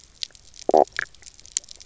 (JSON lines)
{"label": "biophony, knock croak", "recorder": "SoundTrap 300"}